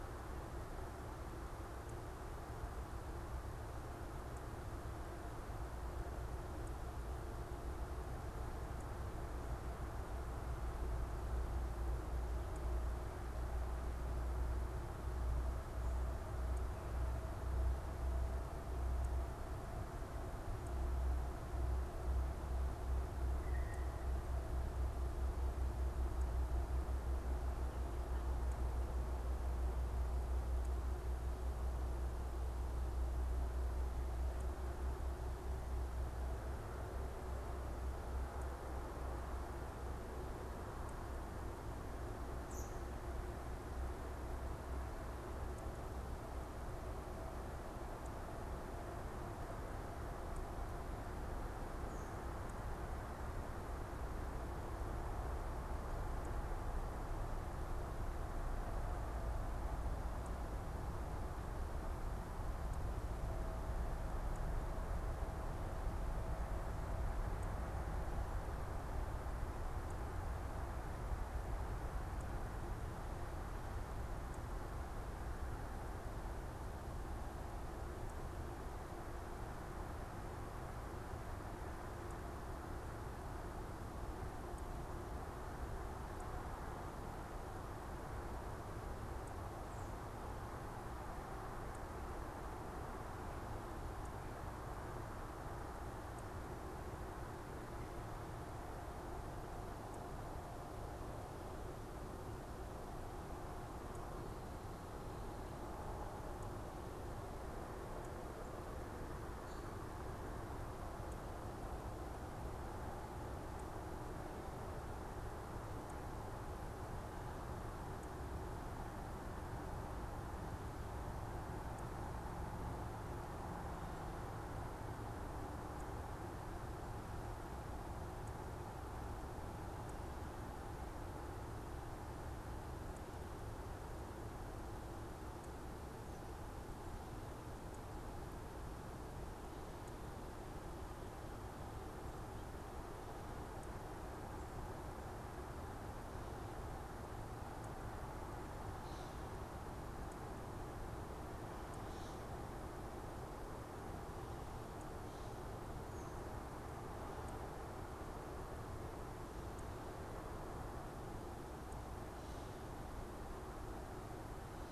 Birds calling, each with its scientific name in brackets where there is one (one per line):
American Robin (Turdus migratorius)
Blue Jay (Cyanocitta cristata)